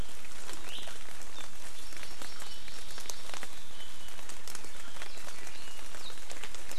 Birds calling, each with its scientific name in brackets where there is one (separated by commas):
Hawaii Amakihi (Chlorodrepanis virens)